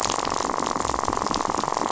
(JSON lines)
{"label": "biophony, rattle", "recorder": "SoundTrap 500"}